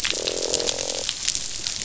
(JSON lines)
{"label": "biophony, croak", "recorder": "SoundTrap 500"}